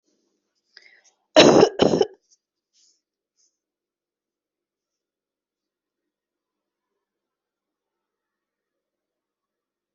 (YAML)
expert_labels:
- quality: ok
  cough_type: wet
  dyspnea: false
  wheezing: false
  stridor: false
  choking: false
  congestion: false
  nothing: true
  diagnosis: lower respiratory tract infection
  severity: mild